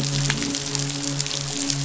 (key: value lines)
label: biophony
recorder: SoundTrap 500

label: biophony, midshipman
recorder: SoundTrap 500